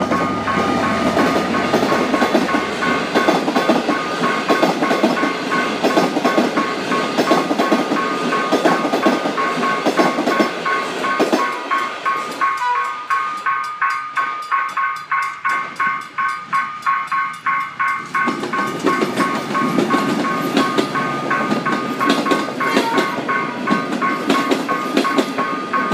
Is this a safe area?
no